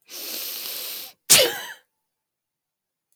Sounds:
Sneeze